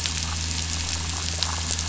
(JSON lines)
{"label": "anthrophony, boat engine", "recorder": "SoundTrap 500"}